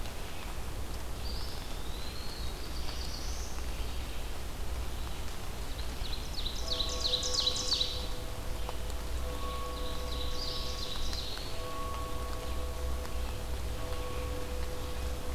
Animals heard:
Eastern Wood-Pewee (Contopus virens), Ovenbird (Seiurus aurocapilla), Black-throated Blue Warbler (Setophaga caerulescens)

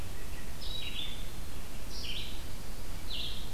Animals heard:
Red-eyed Vireo (Vireo olivaceus), American Robin (Turdus migratorius)

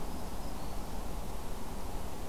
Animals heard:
Black-throated Green Warbler (Setophaga virens)

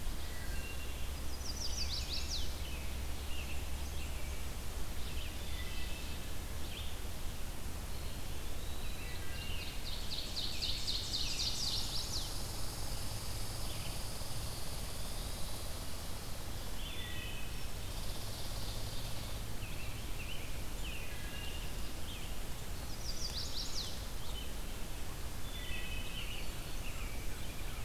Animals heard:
Red-eyed Vireo (Vireo olivaceus), Golden-crowned Kinglet (Regulus satrapa), Eastern Wood-Pewee (Contopus virens), American Robin (Turdus migratorius), Ovenbird (Seiurus aurocapilla), Chestnut-sided Warbler (Setophaga pensylvanica), Wood Thrush (Hylocichla mustelina), Red Squirrel (Tamiasciurus hudsonicus)

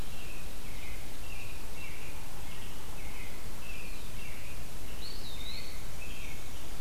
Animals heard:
Eastern Wood-Pewee (Contopus virens), American Robin (Turdus migratorius)

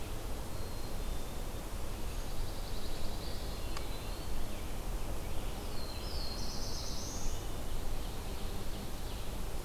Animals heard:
Scarlet Tanager (Piranga olivacea), Ovenbird (Seiurus aurocapilla), Eastern Wood-Pewee (Contopus virens), Black-capped Chickadee (Poecile atricapillus), Pine Warbler (Setophaga pinus), Black-throated Blue Warbler (Setophaga caerulescens)

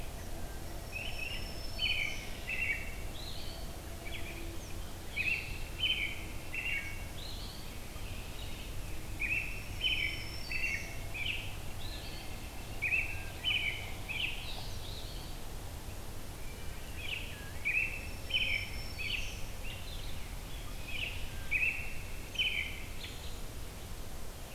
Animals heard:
Black-throated Green Warbler (Setophaga virens), Red-winged Blackbird (Agelaius phoeniceus), American Robin (Turdus migratorius), Wood Thrush (Hylocichla mustelina)

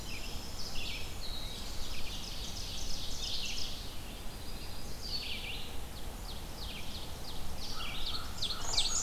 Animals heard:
Winter Wren (Troglodytes hiemalis), American Crow (Corvus brachyrhynchos), Black-and-white Warbler (Mniotilta varia), Red-eyed Vireo (Vireo olivaceus), Ovenbird (Seiurus aurocapilla), Yellow Warbler (Setophaga petechia)

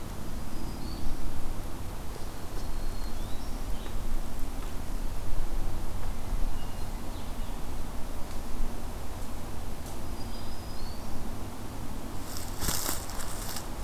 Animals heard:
Blue-headed Vireo (Vireo solitarius), Hermit Thrush (Catharus guttatus), Black-throated Green Warbler (Setophaga virens)

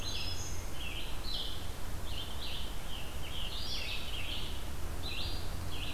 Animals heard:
Black-throated Green Warbler (Setophaga virens), Scarlet Tanager (Piranga olivacea), Red-eyed Vireo (Vireo olivaceus)

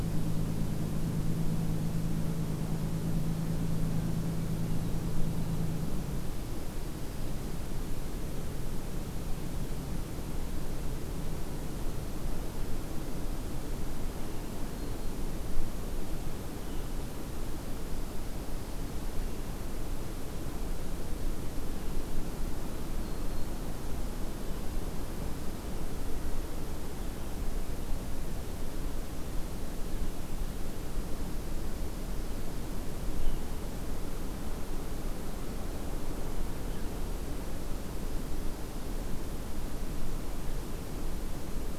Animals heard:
Black-throated Green Warbler (Setophaga virens)

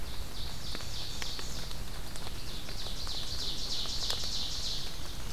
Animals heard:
Red-eyed Vireo (Vireo olivaceus), Ovenbird (Seiurus aurocapilla)

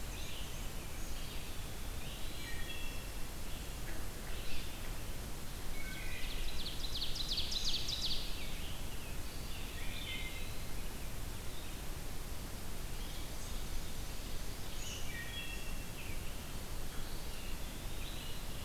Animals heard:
Eastern Wood-Pewee (Contopus virens), Wood Thrush (Hylocichla mustelina), Black-and-white Warbler (Mniotilta varia), Red-eyed Vireo (Vireo olivaceus), Ovenbird (Seiurus aurocapilla)

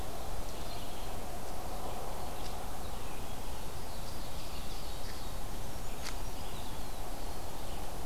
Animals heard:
Brown Creeper (Certhia americana), Ovenbird (Seiurus aurocapilla), Red-eyed Vireo (Vireo olivaceus)

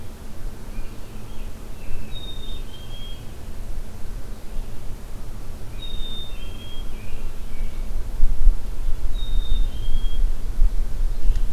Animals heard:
Red-eyed Vireo (Vireo olivaceus), American Robin (Turdus migratorius), Black-capped Chickadee (Poecile atricapillus)

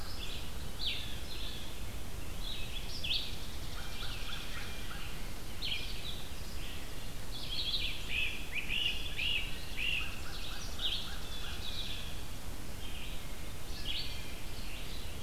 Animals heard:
Blue Jay (Cyanocitta cristata), Red-eyed Vireo (Vireo olivaceus), Great Crested Flycatcher (Myiarchus crinitus), Chipping Sparrow (Spizella passerina), American Crow (Corvus brachyrhynchos)

